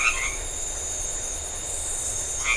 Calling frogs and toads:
white-edged tree frog (Boana albomarginata), Iporanga white-lipped frog (Leptodactylus notoaktites)

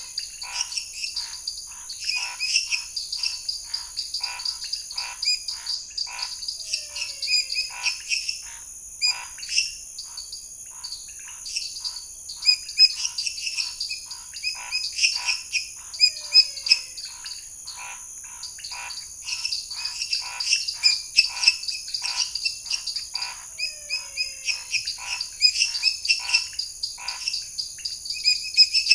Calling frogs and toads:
Scinax fuscovarius, lesser tree frog (Dendropsophus minutus), dwarf tree frog (Dendropsophus nanus), pointedbelly frog (Leptodactylus podicipinus), menwig frog (Physalaemus albonotatus)

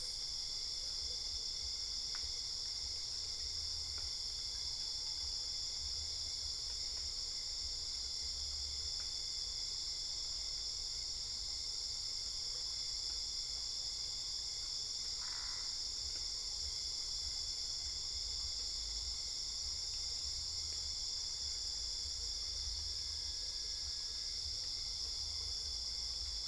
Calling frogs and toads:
Boana albopunctata

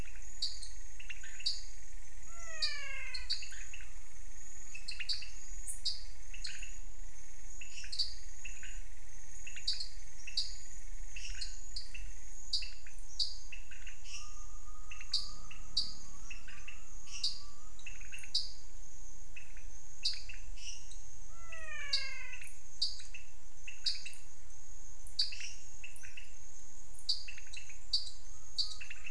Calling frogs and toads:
pointedbelly frog (Leptodactylus podicipinus), dwarf tree frog (Dendropsophus nanus), menwig frog (Physalaemus albonotatus), lesser tree frog (Dendropsophus minutus)

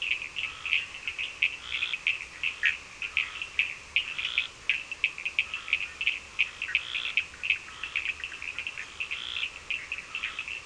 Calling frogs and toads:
Scinax perereca, Cochran's lime tree frog (Sphaenorhynchus surdus)

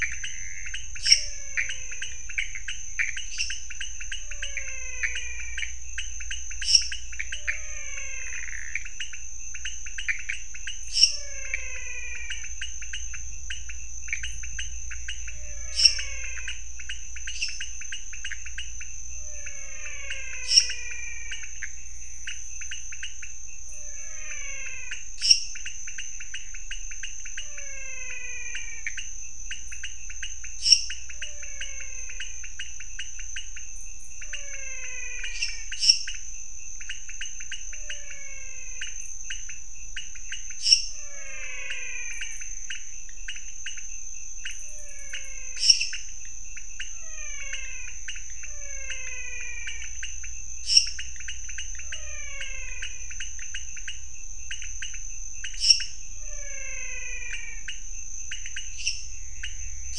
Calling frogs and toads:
Pithecopus azureus, pointedbelly frog (Leptodactylus podicipinus), lesser tree frog (Dendropsophus minutus), menwig frog (Physalaemus albonotatus)

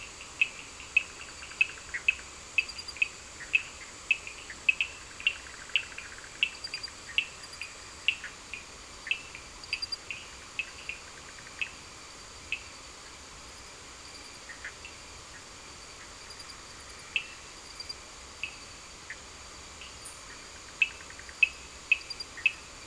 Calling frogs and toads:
Bischoff's tree frog (Boana bischoffi), Cochran's lime tree frog (Sphaenorhynchus surdus)

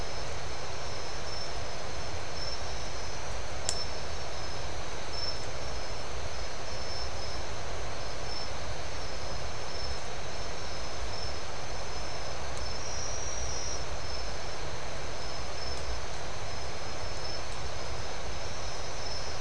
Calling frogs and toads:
none

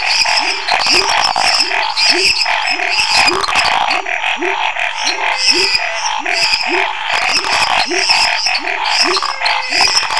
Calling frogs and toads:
lesser tree frog (Dendropsophus minutus), Chaco tree frog (Boana raniceps), pepper frog (Leptodactylus labyrinthicus), Scinax fuscovarius, waxy monkey tree frog (Phyllomedusa sauvagii), menwig frog (Physalaemus albonotatus)

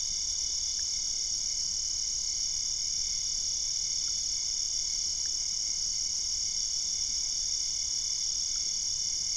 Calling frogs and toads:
none

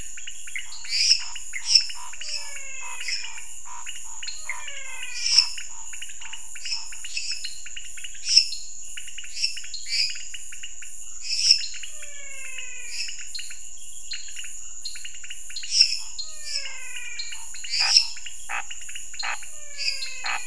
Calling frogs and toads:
dwarf tree frog (Dendropsophus nanus), pointedbelly frog (Leptodactylus podicipinus), Pithecopus azureus, Scinax fuscovarius, lesser tree frog (Dendropsophus minutus), menwig frog (Physalaemus albonotatus)

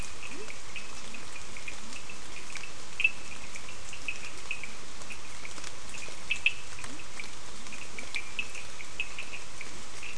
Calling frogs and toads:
Cochran's lime tree frog (Sphaenorhynchus surdus), Leptodactylus latrans

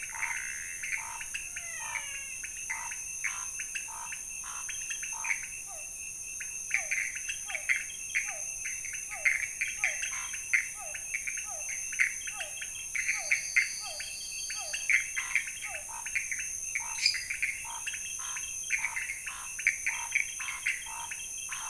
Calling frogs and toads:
Scinax fuscovarius, pointedbelly frog (Leptodactylus podicipinus), Pithecopus azureus, menwig frog (Physalaemus albonotatus), Physalaemus cuvieri, Elachistocleis matogrosso, lesser tree frog (Dendropsophus minutus)

